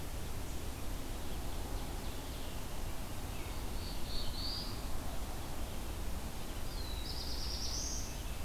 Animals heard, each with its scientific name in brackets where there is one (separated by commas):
Black-throated Blue Warbler (Setophaga caerulescens), Ovenbird (Seiurus aurocapilla)